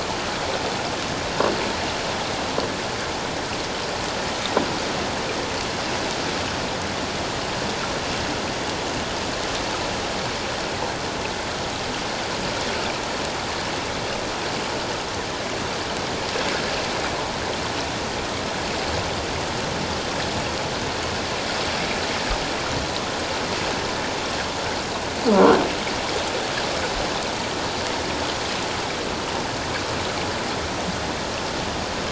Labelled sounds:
25.3	25.6	croaking sound likely from a nearby submerged object, 1.3 to 1.6 kHz

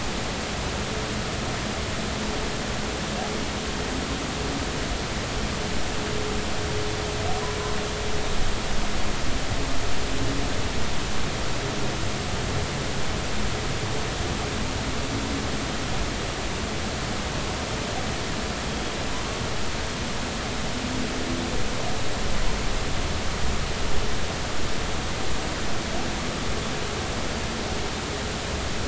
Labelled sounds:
18.7	19.0	humpback whale, 3.2 to 3.3 kHz

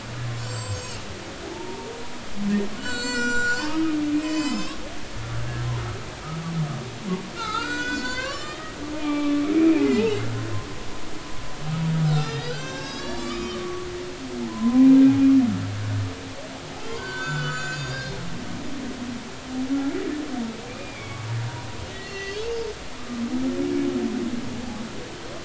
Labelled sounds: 0.4	1.0	humpback whale, 4.4 to 7.8 kHz
1.5	1.9	humpback whale, 0.80 to 0.99 kHz
2.8	4.8	humpback whale, 0.99 to 8.0 kHz
7.3	10.2	humpback whale, 0.80 to 7.5 kHz
12.0	13.9	humpback whale, 1.1 to 7.5 kHz
14.5	14.9	humpback whale, 0.93 to 1.1 kHz
16.9	18.2	humpback whale, 1.2 to 7.3 kHz
20.7	21.2	humpback whale, 2.1 to 2.5 kHz
21.9	22.4	humpback whale, 1.9 to 6.4 kHz

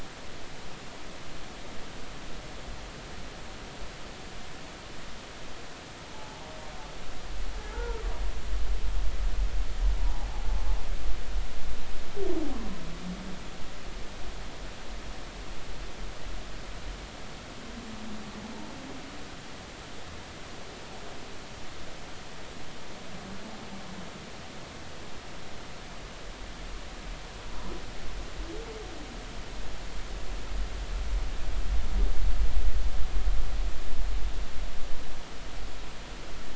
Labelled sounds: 6.1	6.5	humpback whale, 0.83 to 0.99 kHz
7.7	8.0	humpback whale, 0.83 to 1.5 kHz

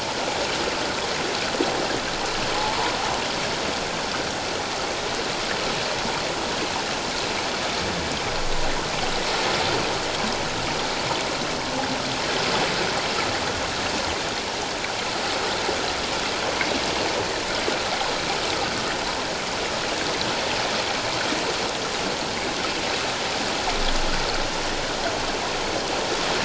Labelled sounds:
2.6	2.9	water noise, 0.81 to 1.1 kHz

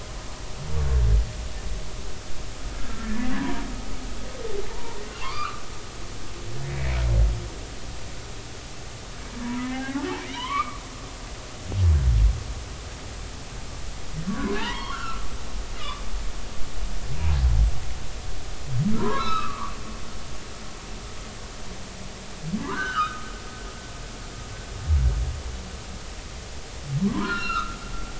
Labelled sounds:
3.0	3.6	humpback whale, 0.90 to 1.9 kHz
4.7	5.6	humpback whale, 0.83 to 3.0 kHz
6.6	7.0	humpback whale, 1.7 to 2.5 kHz
9.4	10.8	humpback whale, 0.80 to 3.3 kHz
14.3	15.3	humpback whale, 0.83 to 3.4 kHz
15.8	16.0	humpback whale, 0.96 to 3.6 kHz
19.0	19.7	humpback whale, 0.90 to 5.3 kHz
22.6	23.3	humpback whale, 0.83 to 3.2 kHz
27.0	27.8	humpback whale, 0.93 to 4.3 kHz

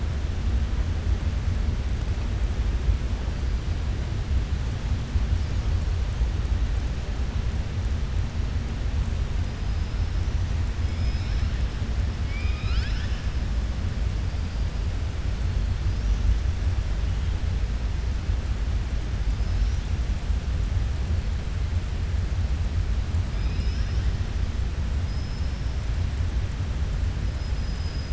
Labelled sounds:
12.2	13.3	killer whale, southern resident, 1.3 to 5.5 kHz
25.0	25.7	killer whale, southern resident, 5.0 to 5.8 kHz
27.6	28.1	killer whale, southern resident, 4.5 to 5.1 kHz

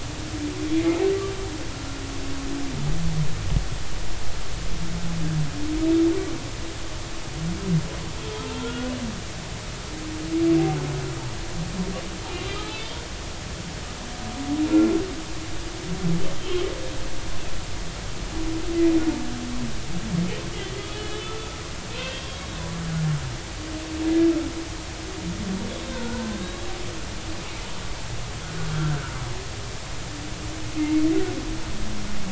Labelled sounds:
1.7	2.0	humpback whale, 1.2 to 1.4 kHz
9.5	9.9	humpback whale, 1.3 to 1.5 kHz
12.6	13.0	humpback whale, 3.4 to 4.1 kHz
16.3	16.7	humpback whale, 3.0 to 3.3 kHz
20.8	21.4	humpback whale, 2.9 to 3.6 kHz
21.9	22.4	humpback whale, 2.5 to 3.3 kHz
25.9	26.5	humpback whale, 0.86 to 1.7 kHz
28.7	29.0	humpback whale, 1.3 to 1.6 kHz
30.8	31.0	humpback whale, 2.0 to 2.2 kHz

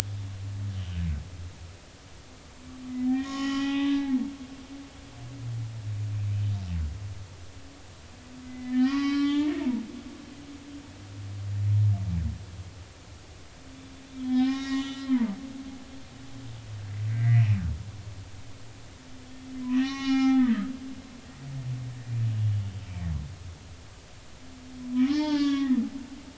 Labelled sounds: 0.7	1.0	humpback whale, 2.8 to 3.3 kHz
3.1	4.2	humpback whale, 0.80 to 4.0 kHz
8.4	9.7	humpback whale, 0.83 to 5.0 kHz
14.2	15.4	humpback whale, 0.80 to 6.0 kHz
17.1	17.6	humpback whale, 1.8 to 2.7 kHz
19.7	20.7	humpback whale, 0.80 to 6.0 kHz
25.0	25.8	humpback whale, 0.80 to 6.0 kHz

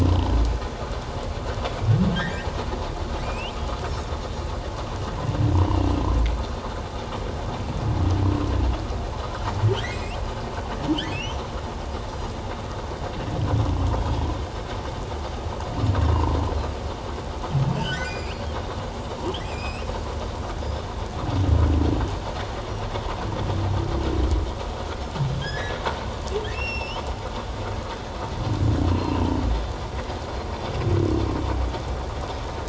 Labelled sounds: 2.1	2.5	humpback whale, 1.5 to 2.1 kHz
3.2	3.5	humpback whale, 2.3 to 3.2 kHz
5.6	5.9	humpback whale, 2.7 to 3.0 kHz
9.9	10.2	humpback whale, 2.4 to 2.9 kHz
11.1	11.4	humpback whale, 2.1 to 3.2 kHz
13.9	14.3	humpback whale, 3.2 to 3.4 kHz
17.7	18.4	humpback whale, 1.4 to 7.4 kHz
19.4	19.9	humpback whale, 2.3 to 7.9 kHz
25.4	25.8	humpback whale, 1.6 to 2.1 kHz
26.5	27.0	humpback whale, 2.5 to 5.6 kHz
28.9	29.2	humpback whale, 2.6 to 4.2 kHz

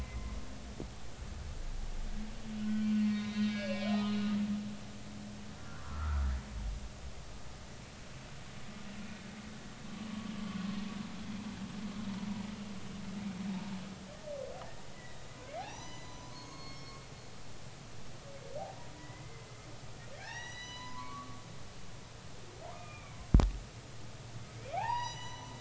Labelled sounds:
0.0	0.3	humpback whale, 2.0 to 2.1 kHz
2.5	3.9	humpback whale, 1.3 to 4.1 kHz
5.5	6.2	humpback whale, 0.96 to 1.6 kHz
14.9	15.2	humpback whale, 1.9 to 2.0 kHz
15.6	17.0	humpback whale, 0.80 to 7.1 kHz
19.0	19.4	humpback whale, 0.93 to 2.1 kHz
20.1	21.4	humpback whale, 0.80 to 6.0 kHz
22.7	23.2	humpback whale, 0.90 to 2.5 kHz
24.6	25.5	humpback whale, 0.80 to 7.9 kHz

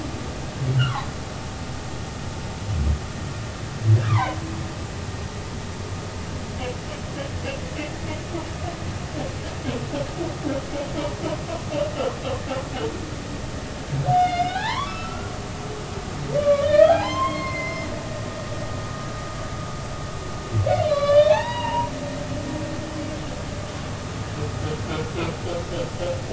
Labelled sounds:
0.8	1.1	humpback whale, 0.80 to 1.6 kHz
4.0	4.4	humpback whale, 0.80 to 2.5 kHz
14.1	15.3	humpback whale, 0.80 to 5.3 kHz
16.4	17.9	humpback whale, 0.80 to 5.4 kHz
20.8	21.9	humpback whale, 0.80 to 4.9 kHz

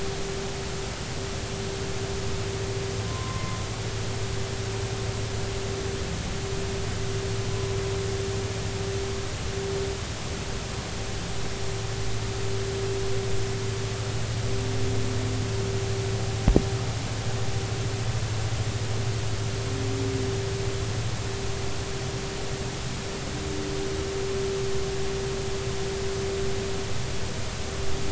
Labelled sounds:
3.1	3.6	humpback whale, 0.99 to 1.1 kHz

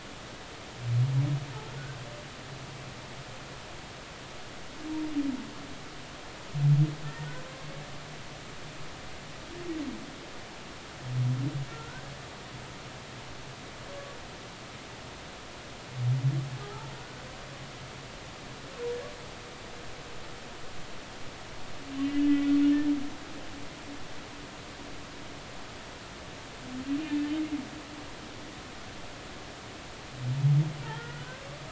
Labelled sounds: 7.0	7.3	humpback whale, 1.7 to 1.9 kHz
11.7	12.0	humpback whale, 1.3 to 1.6 kHz
16.6	16.9	humpback whale, 1.2 to 1.4 kHz
22.0	22.4	humpback whale, 2.5 to 2.9 kHz
30.8	31.5	humpback whale, 1.3 to 2.0 kHz

